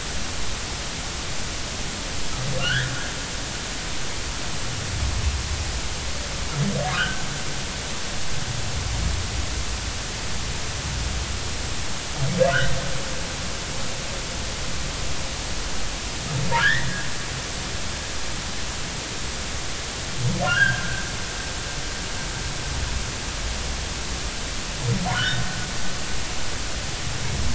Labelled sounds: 2.6	2.9	humpback whale, 1.3 to 3.6 kHz
6.9	7.2	humpback whale, 1.3 to 1.7 kHz
16.6	16.9	humpback whale, 1.3 to 2.0 kHz
20.4	21.0	humpback whale, 1.3 to 1.8 kHz
25.1	25.5	humpback whale, 1.3 to 1.9 kHz

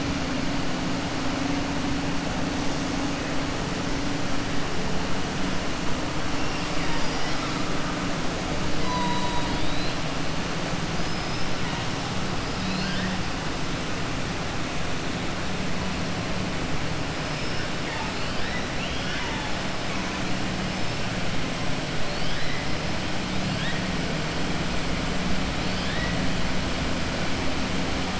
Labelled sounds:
8.8	10.0	killer whale, 2.9 to 5.0 kHz
11.0	11.5	killer whale, 4.5 to 5.4 kHz
12.5	13.1	killer whale, 1.5 to 5.2 kHz
25.6	26.1	killer whale, 1.7 to 5.2 kHz

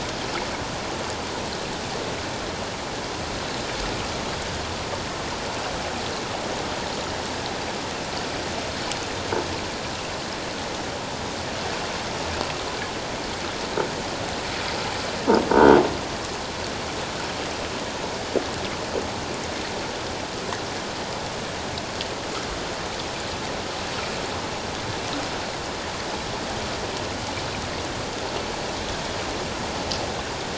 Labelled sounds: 15.5	15.8	croaking sound likely from a nearby submerged object, 1.4 to 1.6 kHz

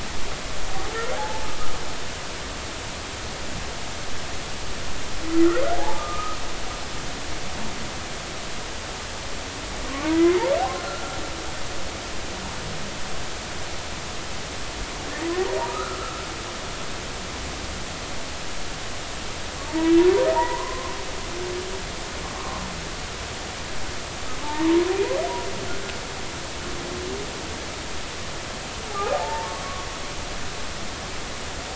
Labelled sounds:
1.1	1.5	humpback whale, 0.80 to 0.93 kHz
5.7	6.4	humpback whale, 0.80 to 1.3 kHz
10.1	11.1	humpback whale, 1.2 to 2.2 kHz
15.7	16.2	humpback whale, 1.2 to 1.5 kHz
19.7	19.9	humpback whale, 0.86 to 1.0 kHz
20.3	20.9	humpback whale, 0.86 to 2.0 kHz
22.3	22.6	humpback whale, 0.99 to 1.2 kHz
24.4	24.8	humpback whale, 0.83 to 1.1 kHz
28.9	29.9	humpback whale, 0.80 to 1.3 kHz

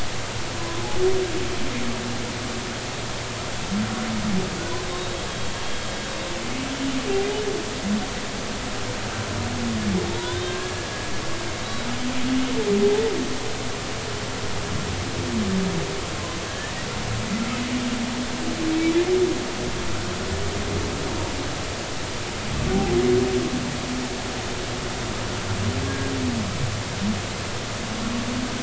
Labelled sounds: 0.6	0.8	humpback whale, 0.96 to 1.1 kHz
4.9	5.2	humpback whale, 3.7 to 3.8 kHz
10.2	11.0	humpback whale, 1.5 to 3.7 kHz
12.3	12.5	humpback whale, 2.8 to 2.9 kHz
16.5	16.7	humpback whale, 1.6 to 1.8 kHz
25.9	26.1	humpback whale, 1.6 to 1.7 kHz

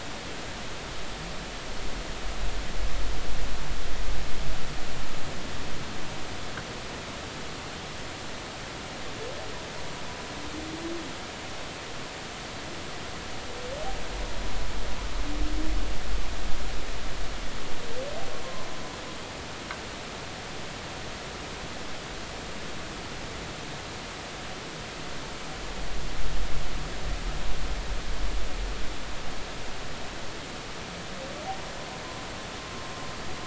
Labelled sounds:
32.6	32.8	humpback whale, 1.0 to 1.1 kHz

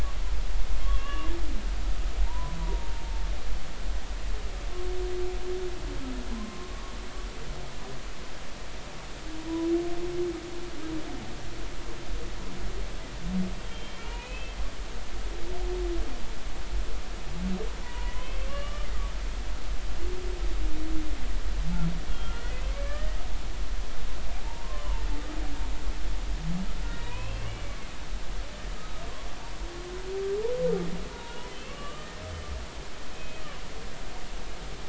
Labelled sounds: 0.8	1.3	humpback whale, 1.0 to 3.0 kHz
2.2	3.0	humpback whale, 0.86 to 1.1 kHz
6.3	6.7	humpback whale, 0.96 to 1.1 kHz
13.6	14.6	humpback whale, 2.2 to 3.3 kHz
17.8	18.9	humpback whale, 0.86 to 3.2 kHz
22.1	23.2	humpback whale, 1.3 to 3.3 kHz
24.4	25.0	humpback whale, 0.83 to 1.2 kHz
26.9	27.9	humpback whale, 0.93 to 2.8 kHz
28.8	29.0	humpback whale, 1.2 to 1.3 kHz
31.1	32.1	humpback whale, 0.90 to 3.1 kHz
33.1	33.4	humpback whale, 2.5 to 2.6 kHz

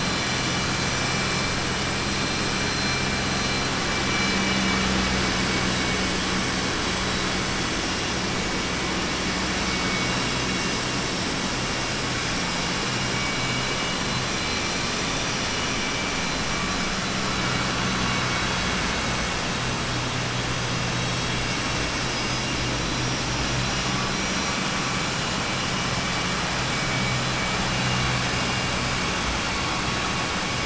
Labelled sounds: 12.8	14.0	vessel noise, 2.2 to 3.6 kHz

